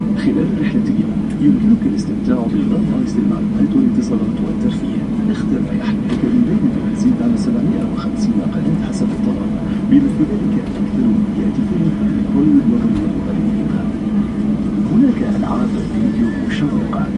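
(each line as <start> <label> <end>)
0.0 Continuous airplane noise. 17.2
0.0 An announcement is being made. 17.2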